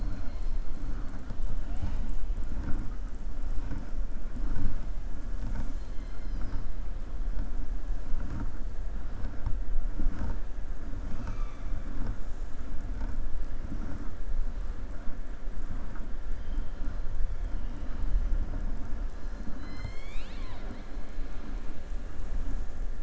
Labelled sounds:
19.5	20.9	killer whale, southern resident, 0.60 to 7.8 kHz

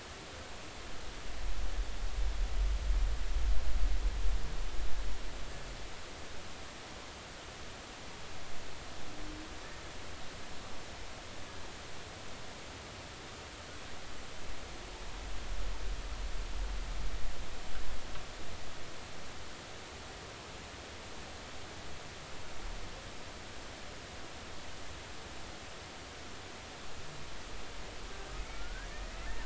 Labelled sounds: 28.5	28.9	humpback whale, 1.3 to 1.7 kHz

